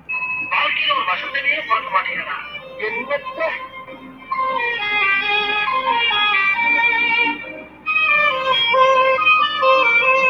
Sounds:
Sigh